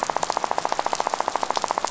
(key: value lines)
label: biophony, rattle
recorder: SoundTrap 500